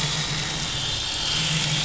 {"label": "anthrophony, boat engine", "recorder": "SoundTrap 500"}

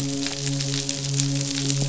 {"label": "biophony, midshipman", "recorder": "SoundTrap 500"}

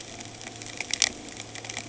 {"label": "anthrophony, boat engine", "recorder": "HydroMoth"}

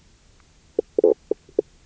{"label": "biophony, knock croak", "recorder": "SoundTrap 300"}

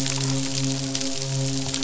{"label": "biophony, midshipman", "recorder": "SoundTrap 500"}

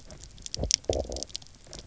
{"label": "biophony, low growl", "recorder": "SoundTrap 300"}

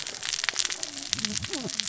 {"label": "biophony, cascading saw", "recorder": "SoundTrap 600 or HydroMoth"}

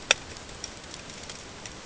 {"label": "ambient", "recorder": "HydroMoth"}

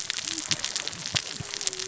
{"label": "biophony, cascading saw", "recorder": "SoundTrap 600 or HydroMoth"}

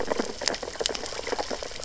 {"label": "biophony, sea urchins (Echinidae)", "recorder": "SoundTrap 600 or HydroMoth"}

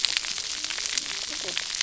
{"label": "biophony, cascading saw", "recorder": "SoundTrap 300"}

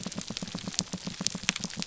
{"label": "biophony", "recorder": "SoundTrap 300"}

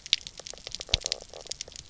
{"label": "biophony, knock croak", "recorder": "SoundTrap 300"}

